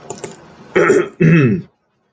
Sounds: Throat clearing